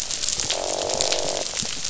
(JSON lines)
{"label": "biophony, croak", "recorder": "SoundTrap 500"}